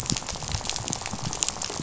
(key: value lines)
label: biophony, rattle
recorder: SoundTrap 500